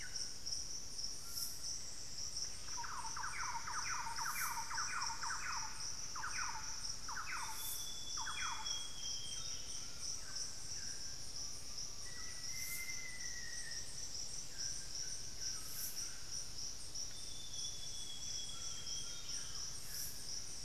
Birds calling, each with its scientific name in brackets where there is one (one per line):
Buff-breasted Wren (Cantorchilus leucotis)
Black-faced Antthrush (Formicarius analis)
Thrush-like Wren (Campylorhynchus turdinus)
Solitary Black Cacique (Cacicus solitarius)
unidentified bird
Amazonian Grosbeak (Cyanoloxia rothschildii)
White-throated Toucan (Ramphastos tucanus)